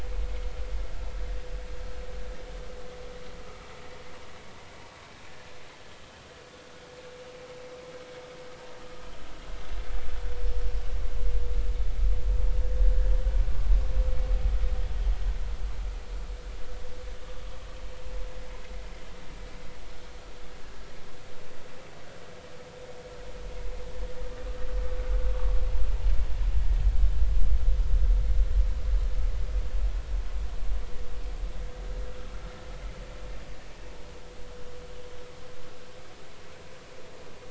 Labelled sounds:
25.3	25.6	vessel noise, 1.1 to 1.3 kHz

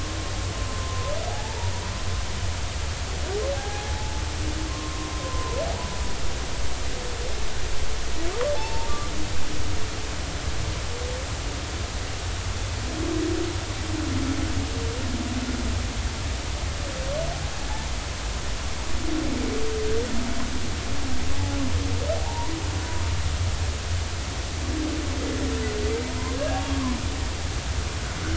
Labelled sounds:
0.7	1.6	humpback whale, 0.80 to 1.1 kHz
3.5	4.2	humpback whale, 0.80 to 1.7 kHz
5.1	6.1	humpback whale, 0.93 to 1.2 kHz
8.5	8.9	humpback whale, 0.80 to 0.96 kHz
21.3	22.5	humpback whale, 0.80 to 1.0 kHz
26.3	27.0	humpback whale, 0.96 to 1.7 kHz

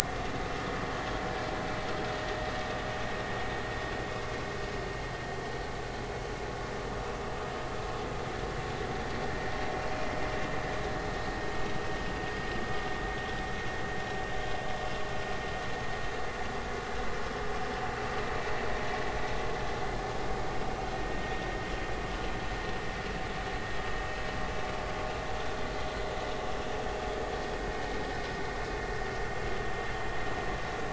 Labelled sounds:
21.0	21.3	vessel noise, 1.8 to 1.9 kHz

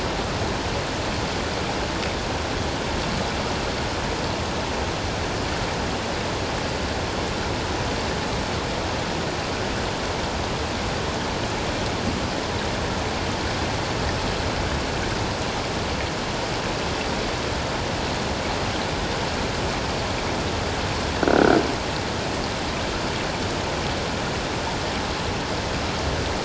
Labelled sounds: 21.2	21.6	croaking sound likely from a nearby submerged object, 1.3 to 1.6 kHz

